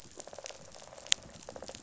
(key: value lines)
label: biophony, rattle response
recorder: SoundTrap 500